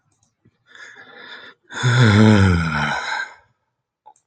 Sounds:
Sigh